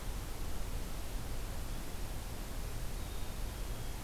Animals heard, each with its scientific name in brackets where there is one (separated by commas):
Black-capped Chickadee (Poecile atricapillus)